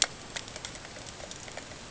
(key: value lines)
label: ambient
recorder: HydroMoth